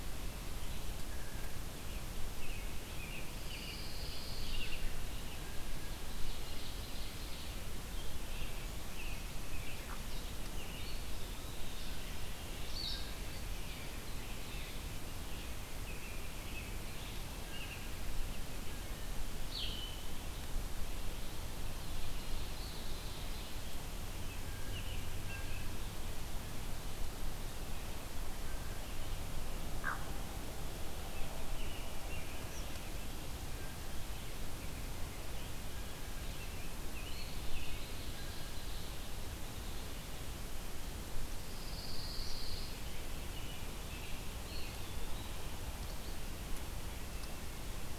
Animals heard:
Rose-breasted Grosbeak (Pheucticus ludovicianus), Eastern Wood-Pewee (Contopus virens), Pine Warbler (Setophaga pinus), Hooded Merganser (Lophodytes cucullatus), American Robin (Turdus migratorius), Blue Jay (Cyanocitta cristata), Blue-headed Vireo (Vireo solitarius), Red-eyed Vireo (Vireo olivaceus), Eastern Kingbird (Tyrannus tyrannus), Ovenbird (Seiurus aurocapilla), Red-winged Blackbird (Agelaius phoeniceus)

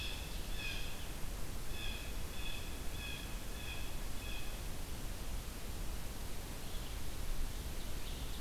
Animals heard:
Blue Jay (Cyanocitta cristata)

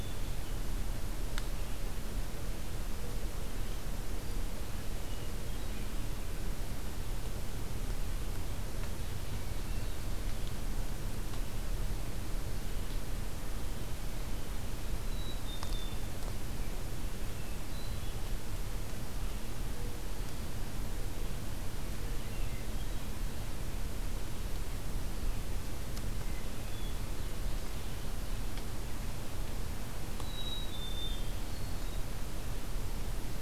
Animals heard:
American Robin (Turdus migratorius), Ovenbird (Seiurus aurocapilla), Black-capped Chickadee (Poecile atricapillus), Hermit Thrush (Catharus guttatus)

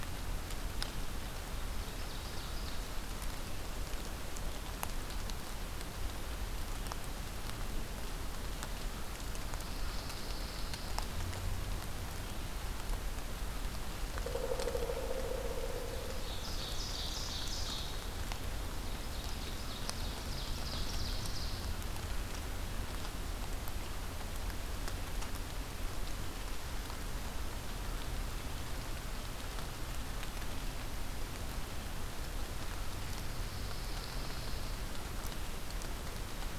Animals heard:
Pileated Woodpecker (Dryocopus pileatus), Ovenbird (Seiurus aurocapilla), Pine Warbler (Setophaga pinus)

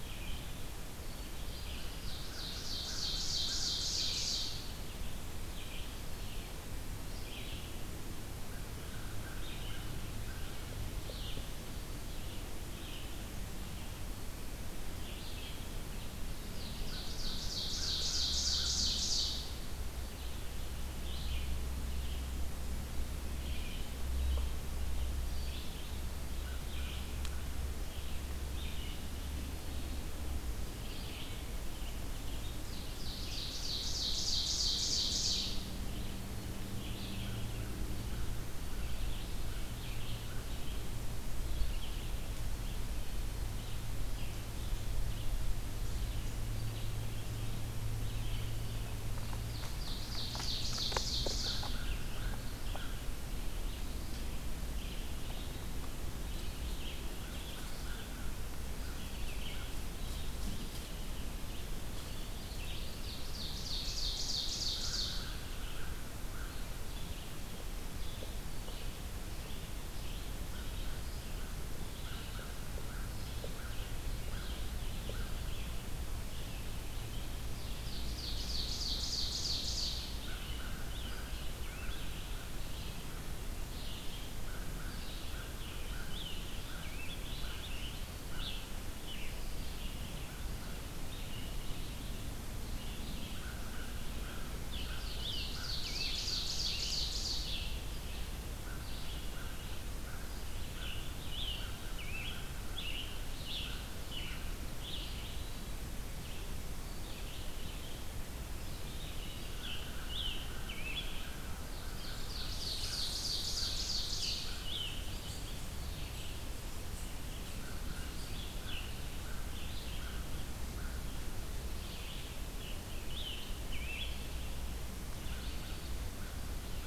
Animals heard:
American Crow (Corvus brachyrhynchos), Ovenbird (Seiurus aurocapilla), Red Squirrel (Tamiasciurus hudsonicus), Scarlet Tanager (Piranga olivacea), Red-eyed Vireo (Vireo olivaceus)

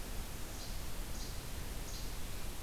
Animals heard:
Least Flycatcher (Empidonax minimus)

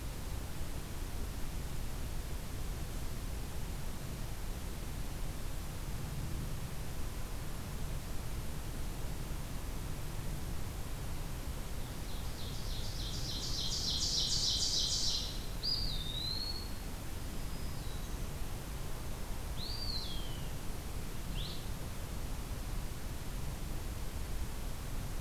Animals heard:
Black-throated Green Warbler (Setophaga virens), Blue-headed Vireo (Vireo solitarius), Ovenbird (Seiurus aurocapilla), Eastern Wood-Pewee (Contopus virens)

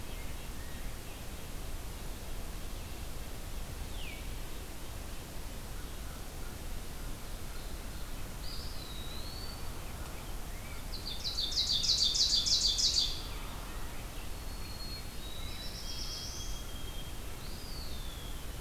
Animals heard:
Eastern Wood-Pewee (Contopus virens), Black-throated Blue Warbler (Setophaga caerulescens), Veery (Catharus fuscescens), Ovenbird (Seiurus aurocapilla), White-throated Sparrow (Zonotrichia albicollis), Red-breasted Nuthatch (Sitta canadensis), American Crow (Corvus brachyrhynchos)

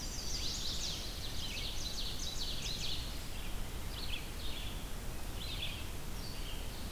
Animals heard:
Red-eyed Vireo (Vireo olivaceus), Chestnut-sided Warbler (Setophaga pensylvanica), Ovenbird (Seiurus aurocapilla)

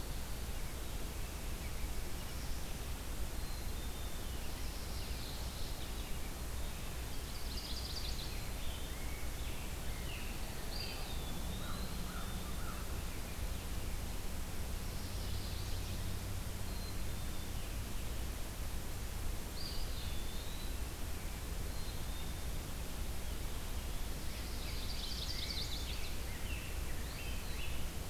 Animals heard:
Chestnut-sided Warbler (Setophaga pensylvanica), American Crow (Corvus brachyrhynchos), Scarlet Tanager (Piranga olivacea), Black-capped Chickadee (Poecile atricapillus), Eastern Wood-Pewee (Contopus virens), Pine Warbler (Setophaga pinus)

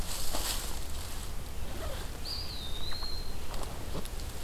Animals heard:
Eastern Wood-Pewee (Contopus virens)

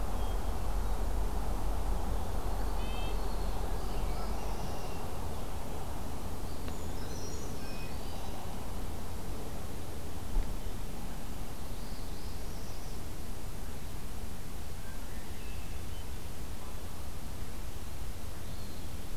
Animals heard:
Eastern Wood-Pewee (Contopus virens), Northern Parula (Setophaga americana), Brown Creeper (Certhia americana), Downy Woodpecker (Dryobates pubescens), Red-winged Blackbird (Agelaius phoeniceus), Red-breasted Nuthatch (Sitta canadensis)

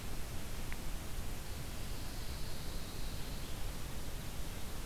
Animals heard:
Pine Warbler (Setophaga pinus)

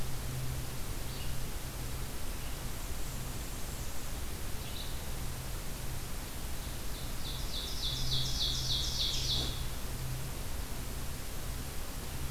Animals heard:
Red-eyed Vireo (Vireo olivaceus), Blackburnian Warbler (Setophaga fusca), Ovenbird (Seiurus aurocapilla)

